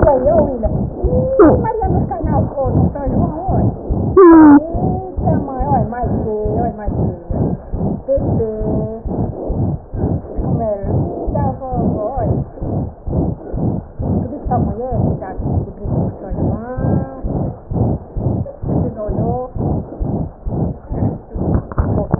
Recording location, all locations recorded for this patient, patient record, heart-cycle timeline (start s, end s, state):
aortic valve (AV)
aortic valve (AV)+pulmonary valve (PV)+tricuspid valve (TV)+mitral valve (MV)
#Age: Child
#Sex: Female
#Height: 84.0 cm
#Weight: 10.8 kg
#Pregnancy status: False
#Murmur: Present
#Murmur locations: aortic valve (AV)+mitral valve (MV)+pulmonary valve (PV)+tricuspid valve (TV)
#Most audible location: pulmonary valve (PV)
#Systolic murmur timing: Holosystolic
#Systolic murmur shape: Plateau
#Systolic murmur grading: III/VI or higher
#Systolic murmur pitch: High
#Systolic murmur quality: Harsh
#Diastolic murmur timing: nan
#Diastolic murmur shape: nan
#Diastolic murmur grading: nan
#Diastolic murmur pitch: nan
#Diastolic murmur quality: nan
#Outcome: Abnormal
#Campaign: 2015 screening campaign
0.00	5.14	unannotated
5.14	5.23	S1
5.23	5.37	systole
5.37	5.44	S2
5.44	5.58	diastole
5.58	5.65	S1
5.65	5.82	systole
5.82	5.87	S2
5.87	6.01	diastole
6.01	6.07	S1
6.07	6.23	systole
6.23	6.27	S2
6.27	6.43	diastole
6.43	6.49	S1
6.49	6.67	systole
6.67	6.71	S2
6.71	6.86	diastole
6.86	6.91	S1
6.91	7.08	systole
7.08	7.15	S2
7.15	7.27	diastole
7.27	7.36	S1
7.36	7.51	systole
7.51	7.57	S2
7.57	7.71	diastole
7.71	7.78	S1
7.78	7.92	systole
7.92	7.96	S2
7.96	8.15	diastole
8.15	8.21	S1
8.21	8.36	systole
8.36	8.43	S2
8.43	8.58	diastole
8.58	8.66	S1
8.66	8.82	systole
8.82	8.89	S2
8.89	9.04	diastole
9.04	9.10	S1
9.10	9.27	systole
9.27	9.33	S2
9.33	9.48	diastole
9.48	9.54	S1
9.54	9.71	systole
9.71	9.78	S2
9.78	9.91	diastole
9.91	9.99	S1
9.99	10.14	systole
10.14	10.20	S2
10.20	10.36	diastole
10.36	10.43	S1
10.43	22.19	unannotated